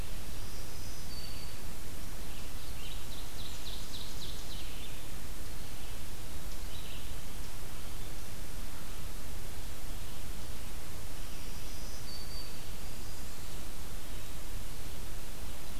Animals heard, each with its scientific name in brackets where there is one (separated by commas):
Black-throated Green Warbler (Setophaga virens), Red-eyed Vireo (Vireo olivaceus), Ovenbird (Seiurus aurocapilla)